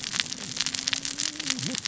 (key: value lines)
label: biophony, cascading saw
recorder: SoundTrap 600 or HydroMoth